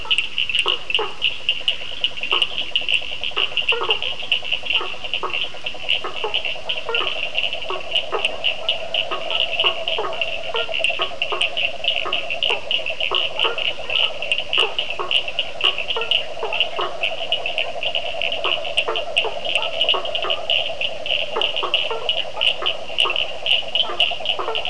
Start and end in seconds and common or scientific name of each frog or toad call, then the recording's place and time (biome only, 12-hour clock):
0.0	24.6	Cochran's lime tree frog
0.4	24.6	blacksmith tree frog
0.8	24.6	yellow cururu toad
Atlantic Forest, 8:15pm